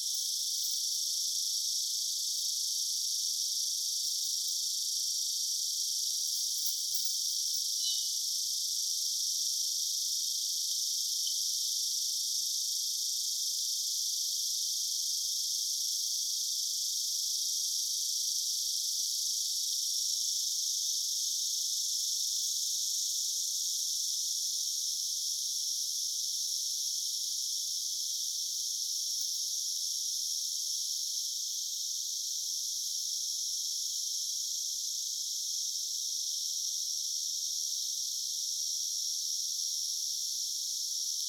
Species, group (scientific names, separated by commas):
Neotibicen lyricen, Cicadidae